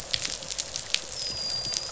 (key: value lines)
label: biophony, dolphin
recorder: SoundTrap 500